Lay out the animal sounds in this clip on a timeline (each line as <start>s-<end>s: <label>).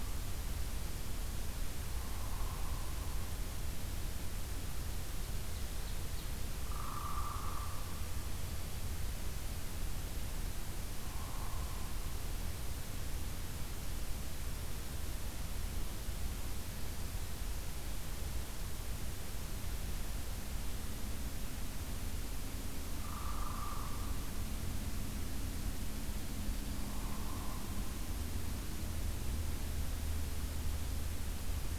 1.8s-3.2s: Hairy Woodpecker (Dryobates villosus)
4.7s-6.3s: Ovenbird (Seiurus aurocapilla)
6.6s-8.0s: Hairy Woodpecker (Dryobates villosus)
11.0s-12.1s: Hairy Woodpecker (Dryobates villosus)
22.9s-24.2s: Hairy Woodpecker (Dryobates villosus)
26.6s-27.9s: Hairy Woodpecker (Dryobates villosus)